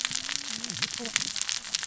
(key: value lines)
label: biophony, cascading saw
recorder: SoundTrap 600 or HydroMoth